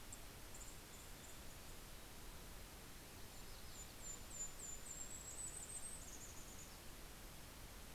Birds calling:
Yellow-rumped Warbler (Setophaga coronata), Golden-crowned Kinglet (Regulus satrapa), Mountain Chickadee (Poecile gambeli)

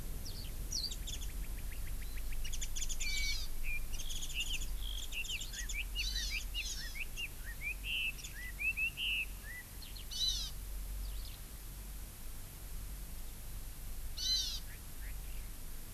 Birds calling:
Red-billed Leiothrix (Leiothrix lutea), Hawaii Amakihi (Chlorodrepanis virens), Eurasian Skylark (Alauda arvensis), Warbling White-eye (Zosterops japonicus)

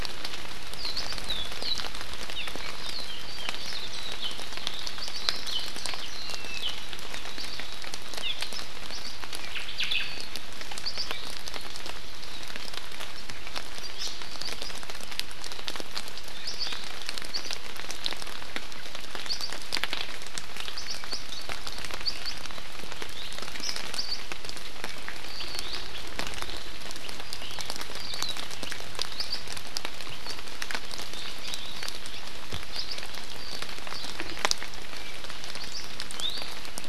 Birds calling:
Iiwi (Drepanis coccinea), Hawaii Akepa (Loxops coccineus), Omao (Myadestes obscurus), Warbling White-eye (Zosterops japonicus), Hawaii Amakihi (Chlorodrepanis virens)

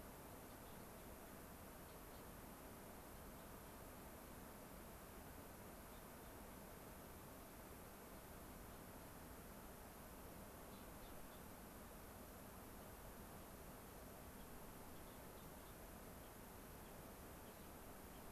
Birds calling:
Gray-crowned Rosy-Finch (Leucosticte tephrocotis)

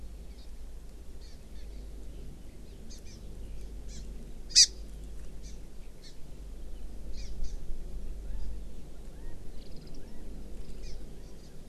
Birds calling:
Warbling White-eye (Zosterops japonicus), Hawaii Amakihi (Chlorodrepanis virens), Chinese Hwamei (Garrulax canorus)

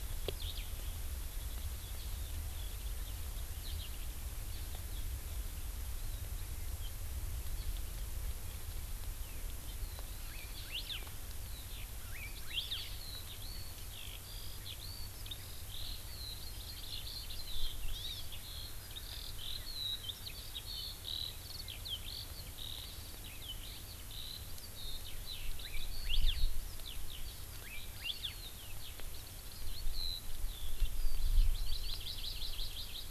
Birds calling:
Hawaii Amakihi (Chlorodrepanis virens), Eurasian Skylark (Alauda arvensis), Hawaii Elepaio (Chasiempis sandwichensis)

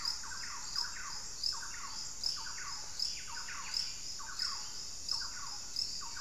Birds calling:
Buff-breasted Wren (Cantorchilus leucotis), Thrush-like Wren (Campylorhynchus turdinus)

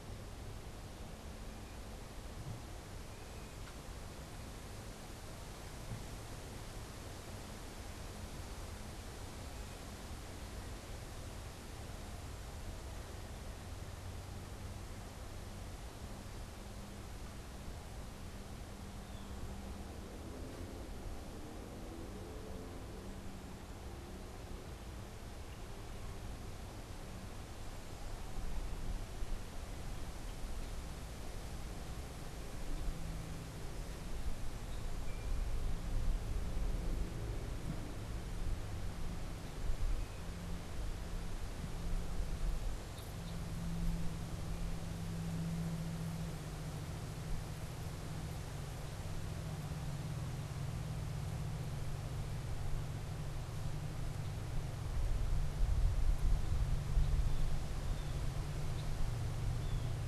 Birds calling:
Blue Jay (Cyanocitta cristata), Red-winged Blackbird (Agelaius phoeniceus), unidentified bird

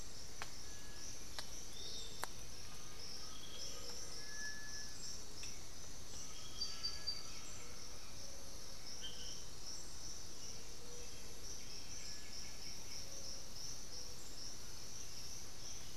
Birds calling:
Black-billed Thrush (Turdus ignobilis), Little Tinamou (Crypturellus soui), White-winged Becard (Pachyramphus polychopterus), Piratic Flycatcher (Legatus leucophaius), Undulated Tinamou (Crypturellus undulatus), Plain-winged Antshrike (Thamnophilus schistaceus)

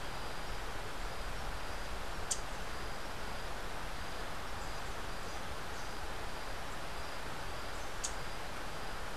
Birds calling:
Rufous-capped Warbler (Basileuterus rufifrons)

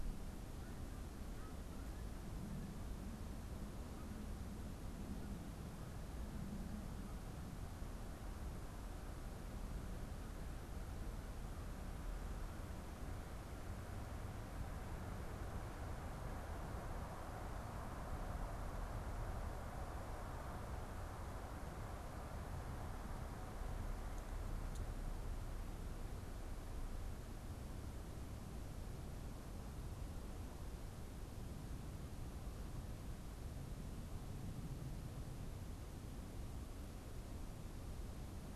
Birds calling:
Canada Goose (Branta canadensis)

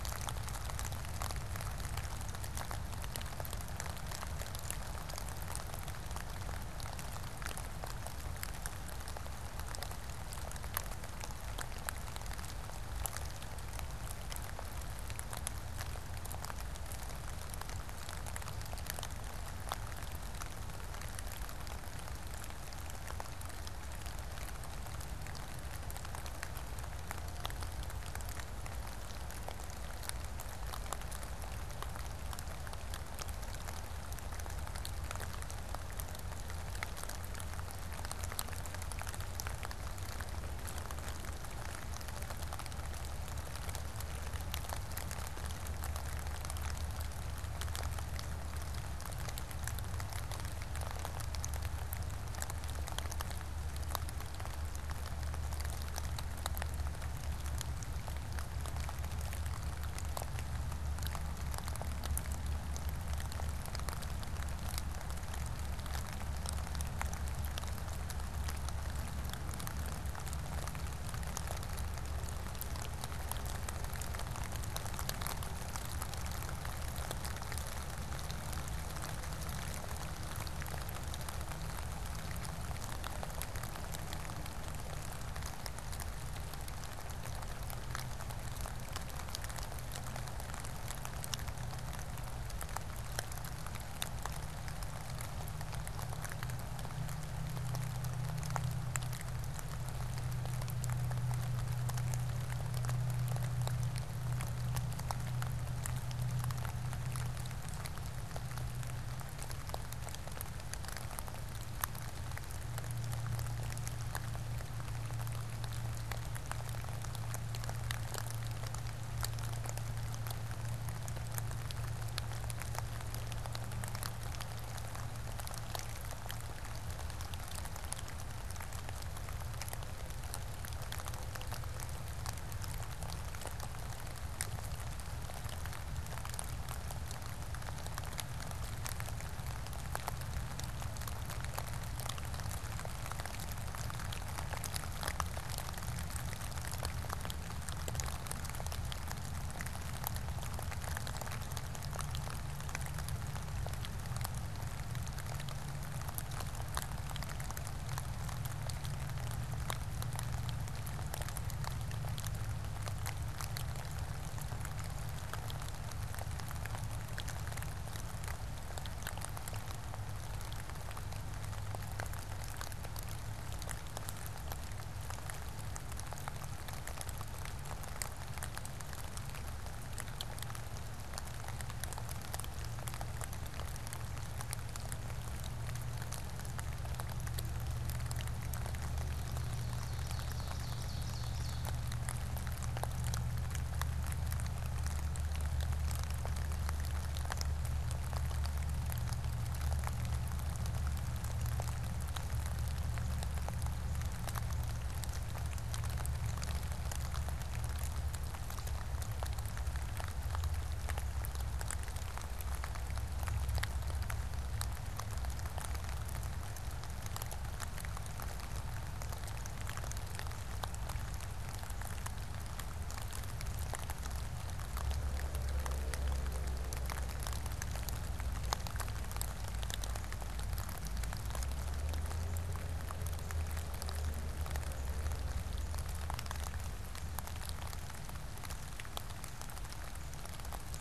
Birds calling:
Ovenbird (Seiurus aurocapilla)

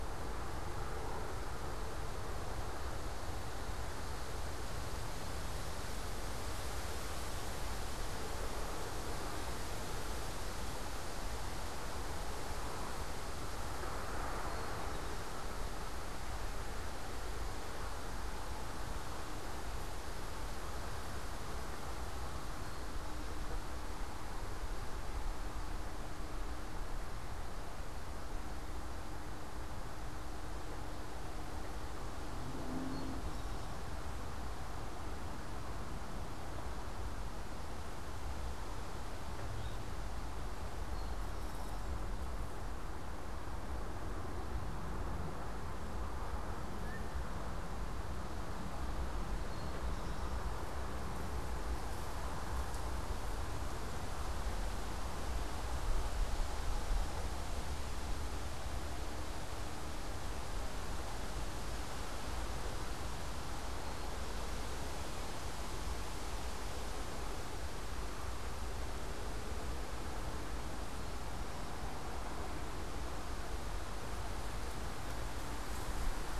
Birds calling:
Eastern Towhee (Pipilo erythrophthalmus), unidentified bird

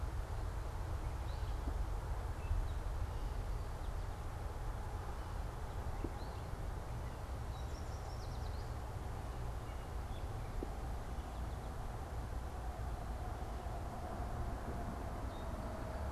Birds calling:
Yellow Warbler (Setophaga petechia)

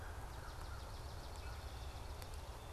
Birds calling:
Swamp Sparrow (Melospiza georgiana)

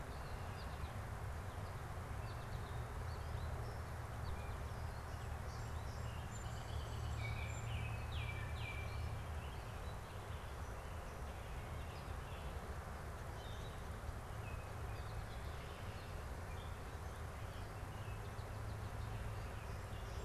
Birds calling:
Song Sparrow (Melospiza melodia), Baltimore Oriole (Icterus galbula)

